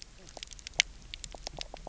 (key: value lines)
label: biophony, knock croak
recorder: SoundTrap 300